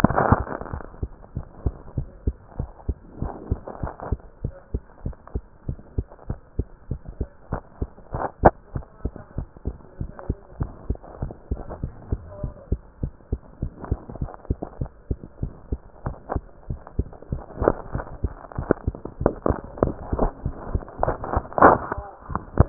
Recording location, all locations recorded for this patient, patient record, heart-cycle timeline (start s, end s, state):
mitral valve (MV)
aortic valve (AV)+pulmonary valve (PV)+tricuspid valve (TV)+mitral valve (MV)
#Age: Child
#Sex: Female
#Height: nan
#Weight: nan
#Pregnancy status: False
#Murmur: Absent
#Murmur locations: nan
#Most audible location: nan
#Systolic murmur timing: nan
#Systolic murmur shape: nan
#Systolic murmur grading: nan
#Systolic murmur pitch: nan
#Systolic murmur quality: nan
#Diastolic murmur timing: nan
#Diastolic murmur shape: nan
#Diastolic murmur grading: nan
#Diastolic murmur pitch: nan
#Diastolic murmur quality: nan
#Outcome: Normal
#Campaign: 2015 screening campaign
0.00	1.32	unannotated
1.32	1.44	S1
1.44	1.62	systole
1.62	1.74	S2
1.74	1.96	diastole
1.96	2.10	S1
2.10	2.22	systole
2.22	2.36	S2
2.36	2.58	diastole
2.58	2.70	S1
2.70	2.84	systole
2.84	2.98	S2
2.98	3.18	diastole
3.18	3.32	S1
3.32	3.46	systole
3.46	3.60	S2
3.60	3.82	diastole
3.82	3.92	S1
3.92	4.08	systole
4.08	4.20	S2
4.20	4.42	diastole
4.42	4.52	S1
4.52	4.70	systole
4.70	4.84	S2
4.84	5.04	diastole
5.04	5.14	S1
5.14	5.34	systole
5.34	5.44	S2
5.44	5.66	diastole
5.66	5.78	S1
5.78	5.94	systole
5.94	6.06	S2
6.06	6.28	diastole
6.28	6.38	S1
6.38	6.54	systole
6.54	6.68	S2
6.68	6.90	diastole
6.90	7.00	S1
7.00	7.16	systole
7.16	7.30	S2
7.30	7.52	diastole
7.52	7.62	S1
7.62	7.78	systole
7.78	7.90	S2
7.90	8.12	diastole
8.12	8.22	S1
8.22	8.38	systole
8.38	8.54	S2
8.54	8.74	diastole
8.74	8.84	S1
8.84	9.04	systole
9.04	9.14	S2
9.14	9.36	diastole
9.36	9.48	S1
9.48	9.66	systole
9.66	9.78	S2
9.78	10.00	diastole
10.00	10.10	S1
10.10	10.28	systole
10.28	10.38	S2
10.38	10.58	diastole
10.58	10.72	S1
10.72	10.86	systole
10.86	11.00	S2
11.00	11.20	diastole
11.20	11.32	S1
11.32	11.52	systole
11.52	11.62	S2
11.62	11.82	diastole
11.82	11.94	S1
11.94	12.10	systole
12.10	12.24	S2
12.24	12.42	diastole
12.42	12.54	S1
12.54	12.68	systole
12.68	12.82	S2
12.82	13.02	diastole
13.02	13.12	S1
13.12	13.28	systole
13.28	13.40	S2
13.40	13.60	diastole
13.60	13.72	S1
13.72	13.88	systole
13.88	14.02	S2
14.02	14.18	diastole
14.18	14.30	S1
14.30	14.46	systole
14.46	14.60	S2
14.60	14.80	diastole
14.80	14.90	S1
14.90	15.06	systole
15.06	15.18	S2
15.18	15.40	diastole
15.40	15.54	S1
15.54	15.68	systole
15.68	15.82	S2
15.82	16.04	diastole
16.04	16.16	S1
16.16	22.69	unannotated